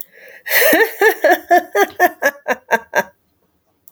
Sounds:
Laughter